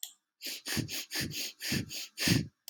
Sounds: Sniff